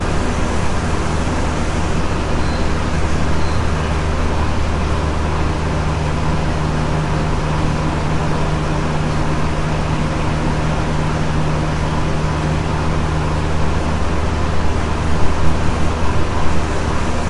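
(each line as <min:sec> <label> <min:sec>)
0:00.1 A fan is spinning. 0:01.9
0:01.9 Beeping sounds with pauses in between. 0:03.9
0:03.9 A fan is spinning. 0:17.3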